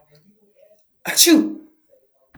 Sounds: Sneeze